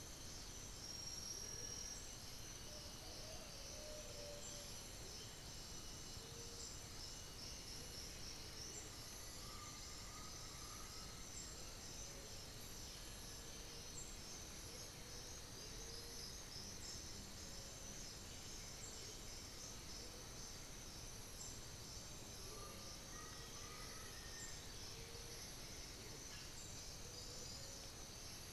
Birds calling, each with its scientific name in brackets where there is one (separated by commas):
Black-faced Antthrush (Formicarius analis), Undulated Tinamou (Crypturellus undulatus), unidentified bird, Amazonian Motmot (Momotus momota), Cinnamon-throated Woodcreeper (Dendrexetastes rufigula)